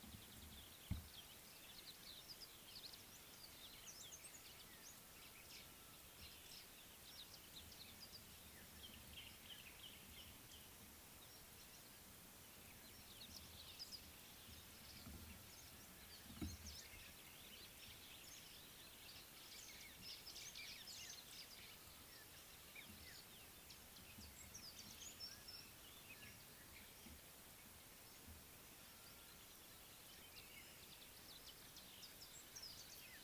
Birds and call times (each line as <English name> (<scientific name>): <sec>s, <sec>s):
Common Bulbul (Pycnonotus barbatus): 9.6s
White-browed Sparrow-Weaver (Plocepasser mahali): 20.6s